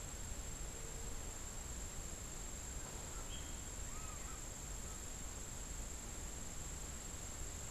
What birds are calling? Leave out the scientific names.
Great Kiskadee